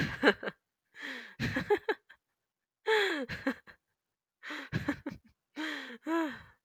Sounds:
Laughter